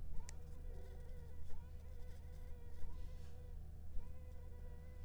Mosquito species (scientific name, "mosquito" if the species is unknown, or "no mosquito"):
Anopheles funestus s.s.